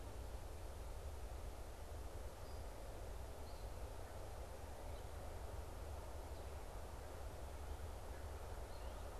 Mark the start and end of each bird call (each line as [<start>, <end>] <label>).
[0.00, 9.19] unidentified bird